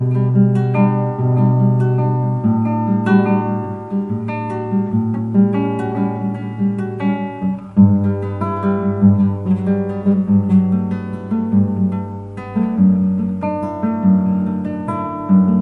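A melodic, rhythmic guitar playing softly. 0.0 - 15.6

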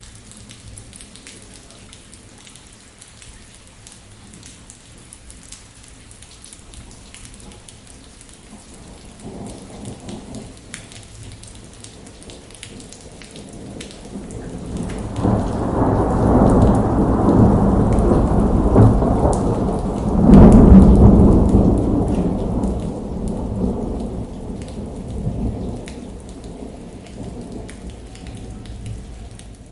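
Rain falling. 0.0 - 9.0
Rain falling with distant thunder. 9.0 - 14.7
Strong thunder with rain sounds in the background. 14.6 - 24.3
Rain falling. 24.2 - 29.7

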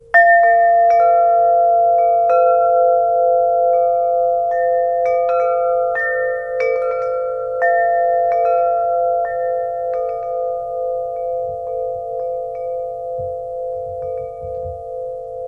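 A droning sound of wind chimes being played multiple times, fading out. 0.0 - 15.5

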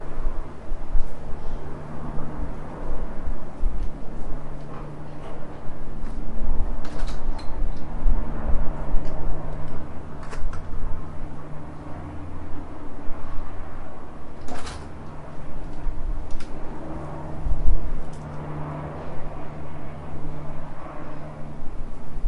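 A helicopter flies in the distance with faint rotor sounds and occasional changes in pitch. 0.0 - 22.3
Flapping noises of a metallic hinge under light pressure or movement. 6.7 - 7.7
Flapping noises of a metallic hinge under light pressure or movement. 10.1 - 10.9
Flapping noises of a metallic hinge under light pressure or movement. 14.4 - 14.9
Flapping noises of a metallic hinge under light pressure or movement. 16.2 - 16.6

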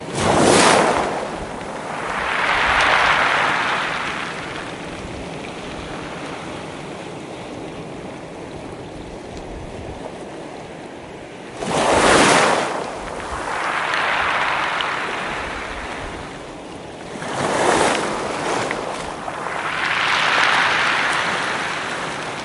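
A quiet wind is blowing. 0.0 - 22.4
The sound of the sea. 0.0 - 22.4
A wave crashes on the shore. 0.0 - 1.7
The sound of a wave pulling back from the shore. 1.8 - 4.6
A wave crashes on the shore. 11.5 - 13.1
The sound of a wave pulling back from the shore. 13.2 - 16.4
A small wave crashes on the shore. 17.0 - 19.0
The sound of a wave pulling back from the shore. 19.2 - 22.4

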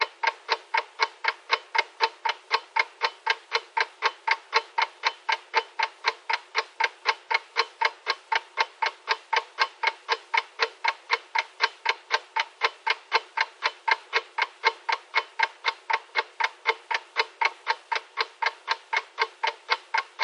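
A clock is ticking rhythmically. 0.0 - 20.2

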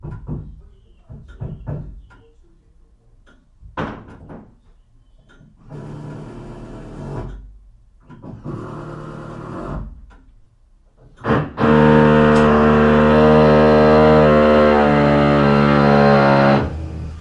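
A low knocking sound of a hammer striking a surface. 0.0 - 2.1
An object falls and hits the ground with a loud, sudden impact. 3.5 - 4.9
A low, intermittent drilling sound cuts off quickly. 5.6 - 10.2
A drill operating loudly and continuously against a wall. 11.0 - 17.2

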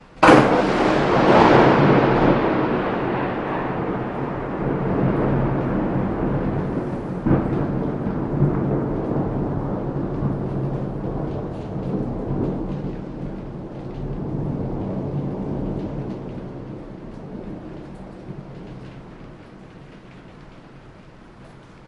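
Light rain falling. 0.0 - 21.9
A loud thunderous bang followed by distant pulses that slowly fade out. 0.2 - 20.3

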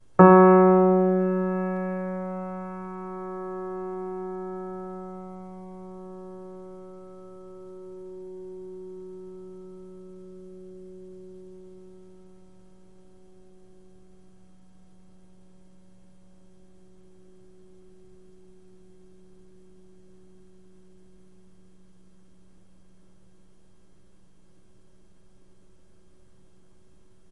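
A single piano key is pressed and held until the sound fades out. 0.0 - 27.3

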